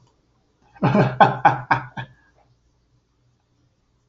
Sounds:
Laughter